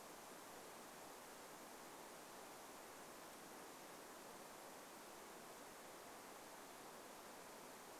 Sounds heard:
forest ambience